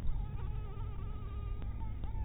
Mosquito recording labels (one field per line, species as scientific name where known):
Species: mosquito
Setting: cup